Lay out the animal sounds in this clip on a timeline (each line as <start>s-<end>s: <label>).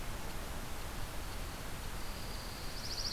1.8s-2.8s: Dark-eyed Junco (Junco hyemalis)